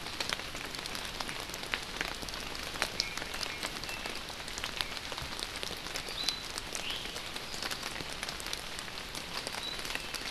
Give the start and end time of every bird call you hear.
[2.96, 4.16] Iiwi (Drepanis coccinea)
[6.76, 7.06] Iiwi (Drepanis coccinea)

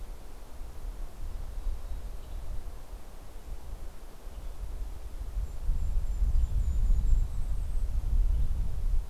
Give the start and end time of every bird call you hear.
[0.00, 9.10] Western Tanager (Piranga ludoviciana)
[0.60, 2.80] Mountain Chickadee (Poecile gambeli)
[4.90, 8.20] Golden-crowned Kinglet (Regulus satrapa)
[6.40, 7.90] Mountain Chickadee (Poecile gambeli)

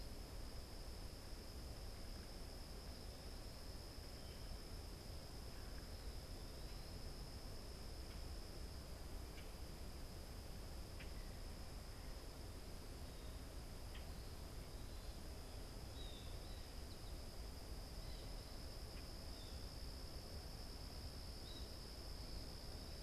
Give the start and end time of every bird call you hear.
[8.93, 14.23] Common Grackle (Quiscalus quiscula)
[15.83, 21.83] Blue Jay (Cyanocitta cristata)
[16.33, 17.73] American Goldfinch (Spinus tristis)

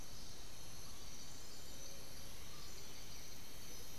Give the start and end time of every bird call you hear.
[1.52, 3.92] White-winged Becard (Pachyramphus polychopterus)

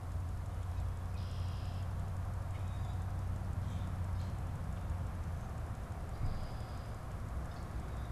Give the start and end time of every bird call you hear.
[0.91, 2.11] Red-winged Blackbird (Agelaius phoeniceus)
[2.61, 4.51] Common Grackle (Quiscalus quiscula)

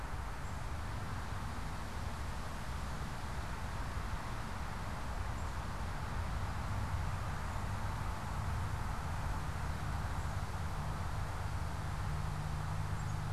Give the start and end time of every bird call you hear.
[0.25, 0.75] Black-capped Chickadee (Poecile atricapillus)
[5.25, 6.05] Black-capped Chickadee (Poecile atricapillus)
[10.05, 13.25] Black-capped Chickadee (Poecile atricapillus)

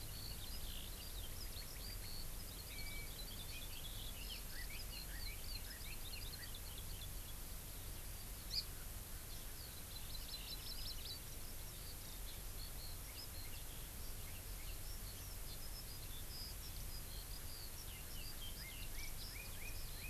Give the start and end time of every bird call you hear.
[0.00, 7.37] Eurasian Skylark (Alauda arvensis)
[8.47, 8.67] Hawaii Amakihi (Chlorodrepanis virens)
[9.27, 20.09] Eurasian Skylark (Alauda arvensis)
[9.77, 11.17] Hawaii Amakihi (Chlorodrepanis virens)
[18.57, 20.09] Red-billed Leiothrix (Leiothrix lutea)

